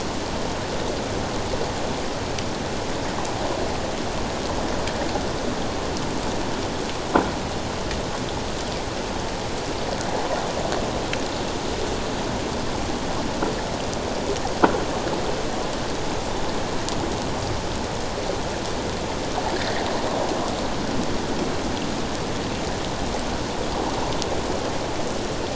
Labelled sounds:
19.6	19.8	water noise, 1.6 to 2.0 kHz

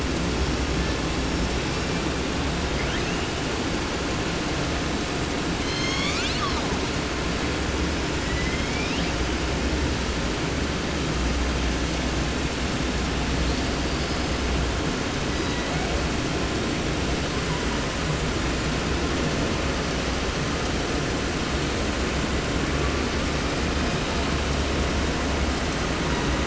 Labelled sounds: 0.3	2.2	killer whale, 0.75 to 5.9 kHz
2.7	3.6	killer whale, 0.74 to 7.5 kHz
5.5	6.8	killer whale, southern resident, J pod, call S01, 0.30 to 8.0 kHz
7.7	9.5	killer whale, 1.1 to 5.8 kHz
13.4	14.6	killer whale, 1.0 to 6.0 kHz
15.2	16.1	killer whale, 0.71 to 5.7 kHz

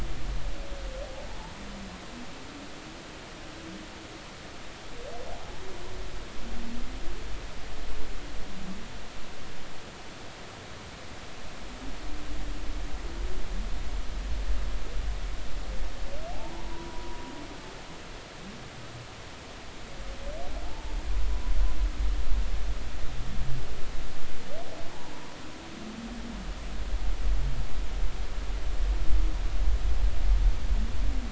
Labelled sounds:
16.5	17.2	humpback whale, 0.83 to 1.0 kHz
20.7	20.9	humpback whale, 0.80 to 0.99 kHz

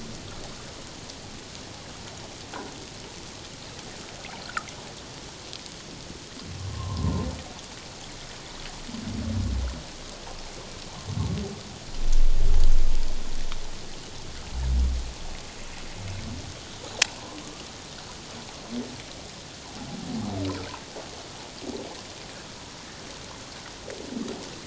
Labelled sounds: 6.7	7.3	humpback whale, 0.88 to 1.1 kHz

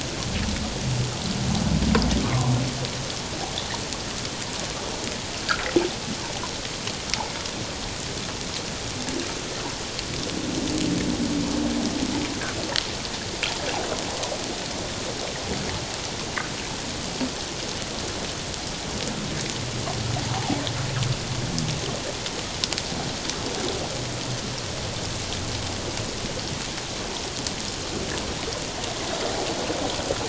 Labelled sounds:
2.2	2.5	humpback whale, 0.91 to 1.3 kHz
20.3	20.6	fish, 0.78 to 0.94 kHz

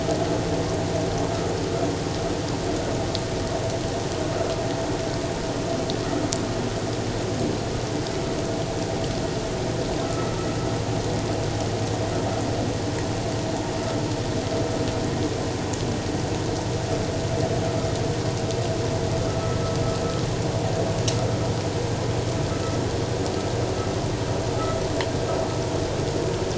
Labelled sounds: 10.0	10.4	vessel noise, 1.2 to 1.4 kHz
19.3	19.6	vessel noise, 1.2 to 1.3 kHz

